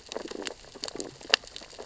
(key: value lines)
label: biophony, stridulation
recorder: SoundTrap 600 or HydroMoth

label: biophony, sea urchins (Echinidae)
recorder: SoundTrap 600 or HydroMoth